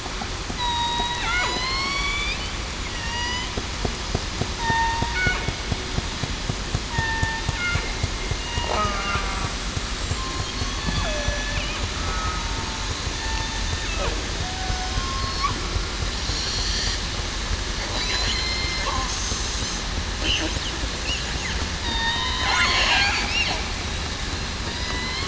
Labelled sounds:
0.6	2.3	killer whale, southern resident, 1.0 to 4.9 kHz
2.9	3.5	killer whale, southern resident, 0.89 to 6.2 kHz
4.6	5.0	killer whale, southern resident, 0.87 to 4.6 kHz
6.9	7.4	killer whale, southern resident, 0.84 to 1.9 kHz
8.4	8.8	killer whale, southern resident, 2.8 to 2.9 kHz
10.9	11.3	killer whale, southern resident, 2.5 to 2.6 kHz
12.0	12.5	killer whale, southern resident, 1.2 to 1.3 kHz
13.1	13.5	killer whale, southern resident, 1.76 to 1.80 kHz
14.4	15.0	killer whale, southern resident, 0.68 to 1.5 kHz
17.9	18.8	killer whale, southern resident, 2.0 to 5.3 kHz
21.8	22.5	killer whale, southern resident, 1.8 to 4.7 kHz
23.1	23.4	killer whale, southern resident, 2.4 to 2.8 kHz
24.7	25.2	killer whale, southern resident, 1.9 to 4.1 kHz

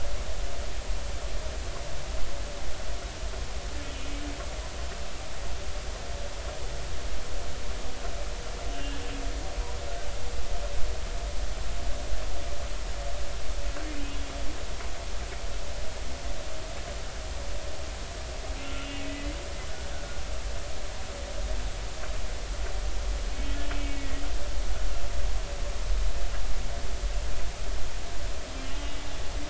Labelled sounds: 8.7	9.0	humpback whale, 2.7 to 3.1 kHz
14.1	14.4	humpback whale, 3.3 to 3.4 kHz
18.6	19.4	humpback whale, 1.3 to 2.1 kHz
19.9	20.2	humpback whale, 1.4 to 1.7 kHz
23.7	24.2	humpback whale, 1.9 to 2.3 kHz

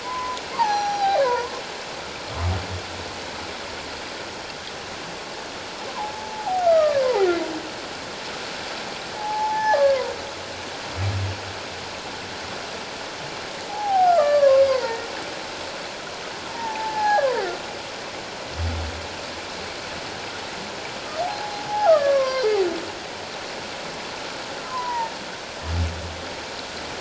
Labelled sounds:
0.0	1.6	humpback whale, 0.78 to 6.2 kHz
6.1	7.3	humpback whale, 0.78 to 2.0 kHz
9.2	10.0	humpback whale, 0.78 to 1.9 kHz
13.7	15.1	humpback whale, 0.78 to 4.9 kHz
16.5	17.4	humpback whale, 0.78 to 1.8 kHz
21.2	22.6	humpback whale, 0.78 to 2.2 kHz
24.6	25.1	humpback whale, 0.84 to 1.1 kHz

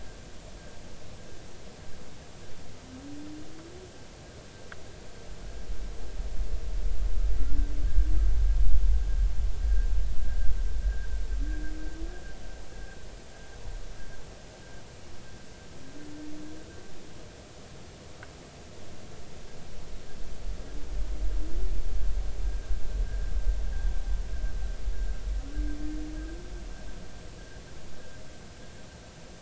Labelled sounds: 7.9	8.1	vessel noise, 1.5 to 1.8 kHz
23.1	23.3	vessel noise, 1.5 to 1.7 kHz

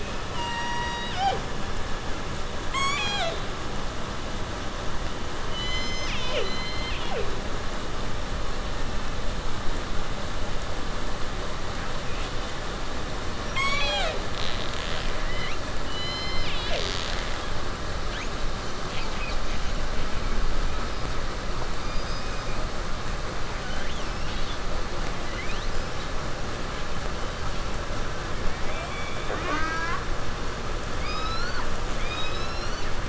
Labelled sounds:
0.2	1.5	killer whale, southern resident, J pod, call S01, 0.11 to 8.0 kHz
2.6	3.5	killer whale, southern resident, 0.24 to 8.0 kHz
5.5	7.5	killer whale, southern resident, J pod, call S01, 0.22 to 7.6 kHz
13.4	18.4	killer whale, southern resident, 0.29 to 8.0 kHz
18.6	19.9	killer whale, southern resident, call S10, 1.1 to 7.6 kHz
21.6	22.7	killer whale, 1.9 to 8.0 kHz
23.6	24.6	killer whale, 1.1 to 7.8 kHz
25.2	26.0	killer whale, 1.4 to 7.5 kHz
26.7	27.5	killer whale, 2.5 to 4.9 kHz
28.4	30.1	killer whale, southern resident, 0.27 to 7.5 kHz
30.9	32.9	killer whale, southern resident, J pod, call S12, 0.65 to 7.1 kHz

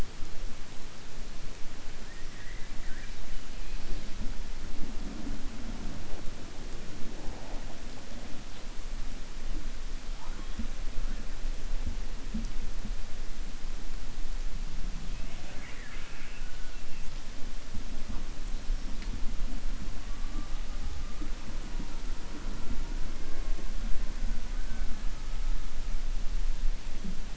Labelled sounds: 15.1	16.8	killer whale, 0.61 to 3.5 kHz

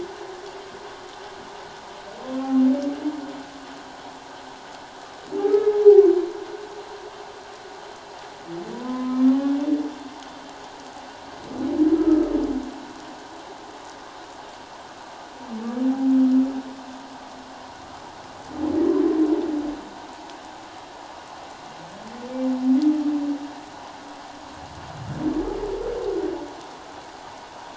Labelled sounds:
8.7	9.3	humpback whale, 0.94 to 1.1 kHz

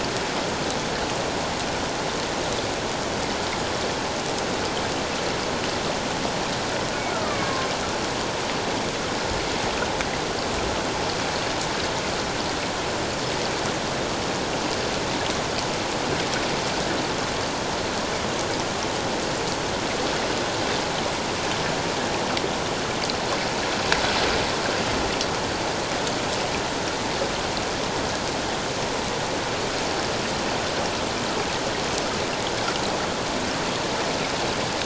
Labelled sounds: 7.1	7.7	killer whale, Bigg's (transient), 1.0 to 1.5 kHz

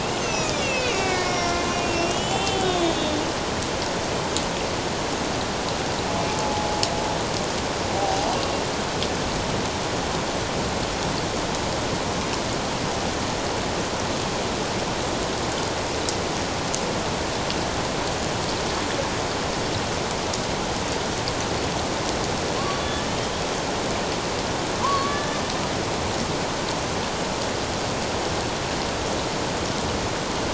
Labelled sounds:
0.0	3.2	killer whale, Bigg's (transient), 0.78 to 7.8 kHz
6.3	6.7	killer whale, Bigg's (transient), 0.78 to 0.97 kHz
8.0	8.4	killer whale, Bigg's (transient), 0.78 to 1.0 kHz
22.8	23.0	killer whale, Bigg's (transient), 3.4 to 3.5 kHz
24.8	25.4	killer whale, Bigg's (transient), 0.94 to 1.8 kHz

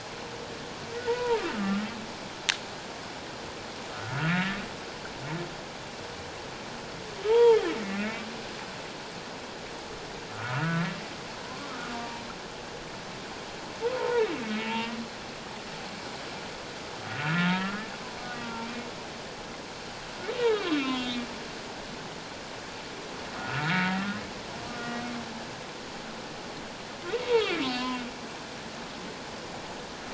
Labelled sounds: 0.9	1.9	humpback whale, 0.84 to 2.0 kHz
3.9	4.6	humpback whale, 1.2 to 2.1 kHz
7.2	8.1	humpback whale, 0.81 to 3.4 kHz
10.3	10.9	humpback whale, 1.2 to 1.6 kHz
11.4	12.3	humpback whale, 0.84 to 1.2 kHz
14.0	14.3	humpback whale, 0.88 to 1.1 kHz
14.6	14.9	humpback whale, 0.84 to 2.9 kHz
17.1	17.8	humpback whale, 1.2 to 1.5 kHz
18.2	18.6	humpback whale, 1.1 to 1.2 kHz
20.4	21.2	humpback whale, 1.1 to 4.5 kHz
23.4	24.2	humpback whale, 0.88 to 2.4 kHz
24.7	24.9	humpback whale, 1.1 to 1.3 kHz
27.6	28.0	humpback whale, 2.7 to 4.4 kHz

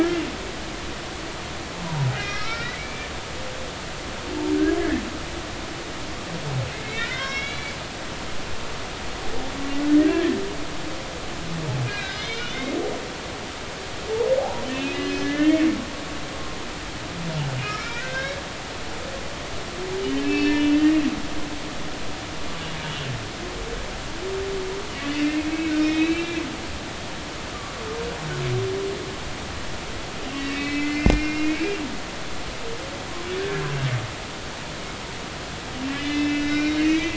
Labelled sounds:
2.2	3.1	humpback whale, 0.86 to 2.6 kHz
4.8	5.0	humpback whale, 1.6 to 1.8 kHz
6.7	7.7	humpback whale, 1.3 to 5.5 kHz
10.0	10.4	humpback whale, 1.6 to 1.9 kHz
11.9	12.5	humpback whale, 1.5 to 4.2 kHz
14.4	15.7	humpback whale, 0.80 to 2.6 kHz
17.5	18.4	humpback whale, 1.2 to 3.9 kHz
20.2	21.0	humpback whale, 1.7 to 3.1 kHz
25.2	26.4	humpback whale, 1.6 to 4.0 kHz
30.2	31.8	humpback whale, 2.0 to 5.5 kHz
33.3	33.6	humpback whale, 1.6 to 1.8 kHz
35.9	37.1	humpback whale, 1.4 to 3.6 kHz

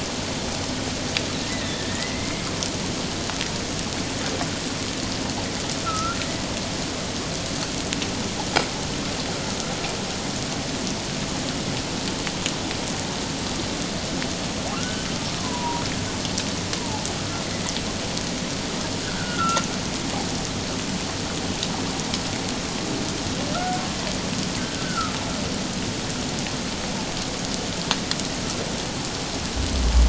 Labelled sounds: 1.5	2.5	humpback whale, 1.7 to 2.2 kHz
5.8	6.2	humpback whale, 1.2 to 1.4 kHz
14.7	15.8	humpback whale, 0.88 to 1.6 kHz
16.8	17.1	humpback whale, 0.78 to 1.1 kHz
19.0	19.7	humpback whale, 1.3 to 1.7 kHz
23.5	23.8	humpback whale, 1.3 to 1.6 kHz
24.6	25.2	humpback whale, 1.2 to 1.7 kHz

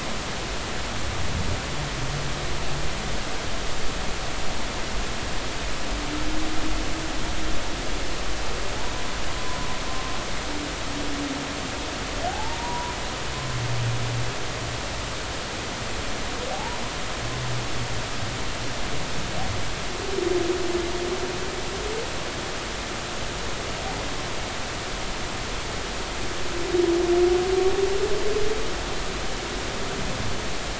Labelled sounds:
12.3	12.6	humpback whale, 0.80 to 0.99 kHz
13.3	14.0	humpback whale, 0.90 to 1.1 kHz
16.5	16.8	humpback whale, 0.80 to 1.0 kHz

